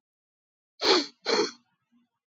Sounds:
Sniff